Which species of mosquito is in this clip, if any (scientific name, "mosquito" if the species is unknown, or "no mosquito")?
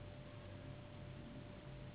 Anopheles gambiae s.s.